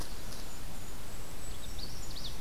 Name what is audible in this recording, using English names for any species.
Golden-crowned Kinglet, Magnolia Warbler